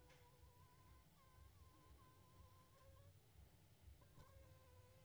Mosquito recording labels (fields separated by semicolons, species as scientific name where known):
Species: Anopheles funestus s.s.; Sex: female; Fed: unfed; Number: one; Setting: cup